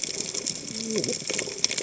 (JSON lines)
{"label": "biophony, cascading saw", "recorder": "HydroMoth"}